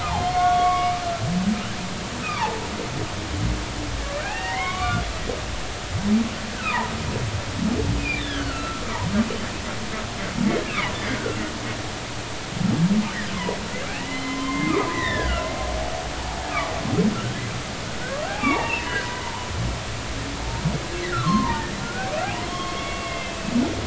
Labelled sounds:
0.0	1.0	humpback whale, 0.80 to 3.4 kHz
2.4	2.6	humpback whale, 0.80 to 1.1 kHz
4.0	5.0	humpback whale, 0.80 to 3.7 kHz
6.5	6.8	humpback whale, 1.2 to 1.7 kHz
8.0	8.8	humpback whale, 1.3 to 3.6 kHz
10.6	11.4	humpback whale, 1.3 to 2.8 kHz
14.0	15.5	humpback whale, 0.99 to 4.0 kHz
16.3	16.5	humpback whale, 0.80 to 0.96 kHz
18.3	19.1	humpback whale, 0.80 to 3.0 kHz
21.1	22.1	humpback whale, 0.83 to 2.0 kHz
22.5	23.5	humpback whale, 1.0 to 3.3 kHz

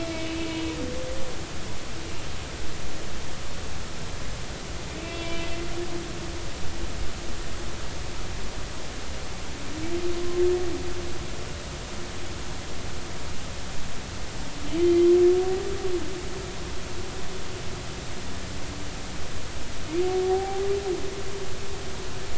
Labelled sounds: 0.0	0.7	humpback whale, 2.6 to 4.0 kHz
5.0	5.5	humpback whale, 2.5 to 3.4 kHz
20.3	20.6	humpback whale, 0.80 to 0.83 kHz

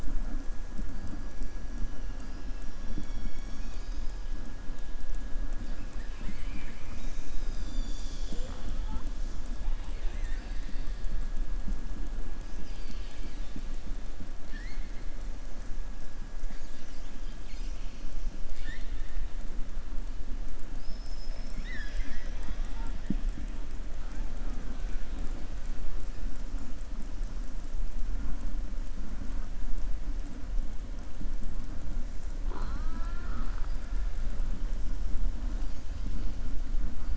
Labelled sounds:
9.8	10.8	killer whale, southern resident, 0.78 to 4.6 kHz
12.5	13.5	killer whale, southern resident, 2.2 to 6.0 kHz
14.4	14.9	killer whale, southern resident, 1.7 to 5.9 kHz
18.4	19.1	killer whale, southern resident, 1.5 to 5.3 kHz

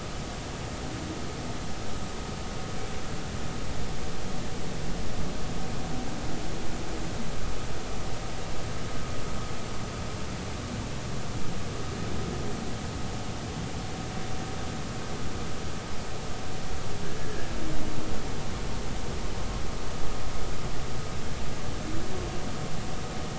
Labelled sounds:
17.2	17.5	humpback whale, 1.6 to 1.8 kHz

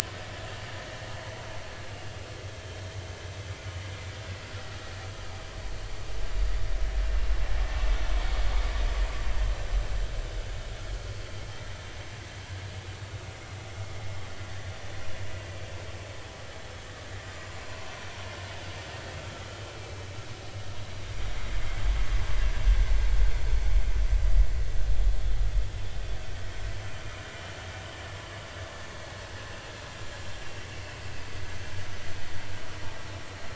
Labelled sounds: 0.5	0.8	vessel noise, 1.6 to 1.9 kHz
19.2	19.5	vessel noise, 1.2 to 1.4 kHz

